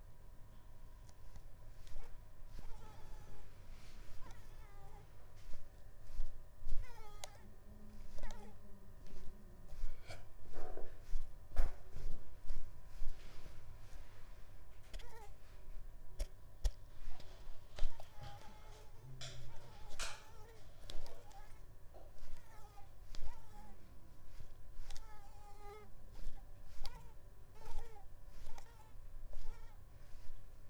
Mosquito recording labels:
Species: Mansonia uniformis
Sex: female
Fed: unfed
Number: one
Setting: cup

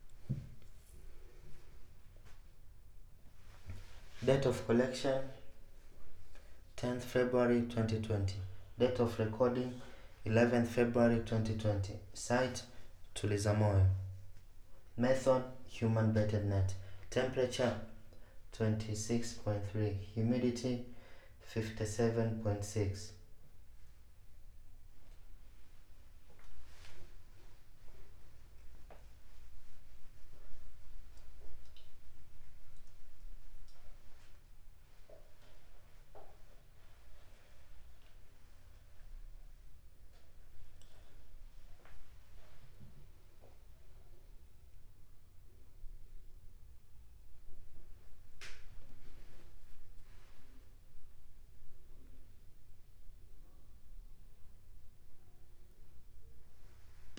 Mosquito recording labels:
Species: no mosquito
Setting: cup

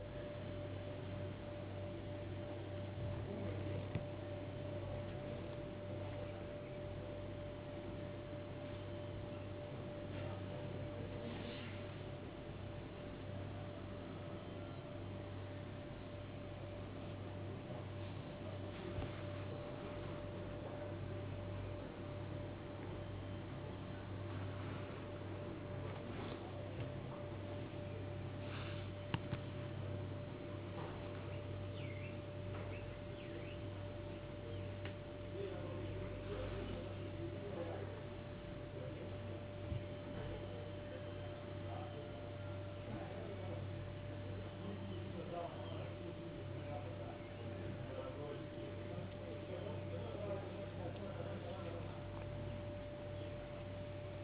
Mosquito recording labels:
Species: no mosquito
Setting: insect culture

